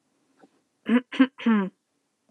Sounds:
Throat clearing